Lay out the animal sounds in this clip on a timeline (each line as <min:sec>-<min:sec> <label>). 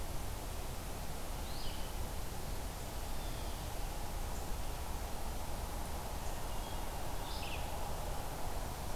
0:01.4-0:02.0 Red-eyed Vireo (Vireo olivaceus)
0:02.9-0:03.7 Blue Jay (Cyanocitta cristata)
0:06.4-0:07.0 Hermit Thrush (Catharus guttatus)
0:06.9-0:07.8 Red-eyed Vireo (Vireo olivaceus)